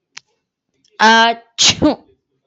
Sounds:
Sneeze